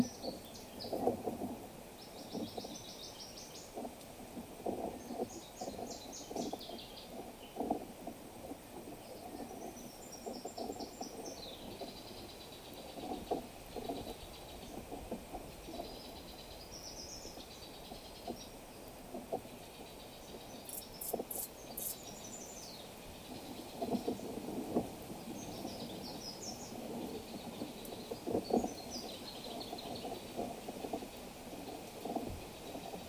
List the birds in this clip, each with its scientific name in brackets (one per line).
Brown Woodland-Warbler (Phylloscopus umbrovirens)
Tacazze Sunbird (Nectarinia tacazze)